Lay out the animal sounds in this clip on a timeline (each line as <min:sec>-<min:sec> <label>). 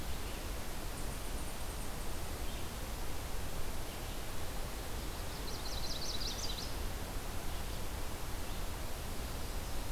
0:05.2-0:06.7 Veery (Catharus fuscescens)